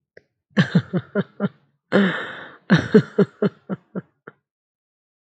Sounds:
Laughter